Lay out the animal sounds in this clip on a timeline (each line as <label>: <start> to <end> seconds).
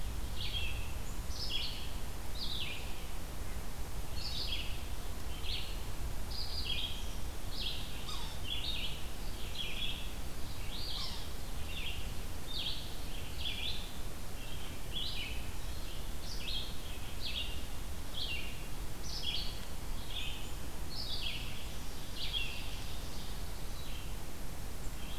Red-eyed Vireo (Vireo olivaceus): 0.0 to 13.9 seconds
Yellow-bellied Sapsucker (Sphyrapicus varius): 8.0 to 8.4 seconds
Red-eyed Vireo (Vireo olivaceus): 14.2 to 25.2 seconds
Ovenbird (Seiurus aurocapilla): 21.9 to 23.3 seconds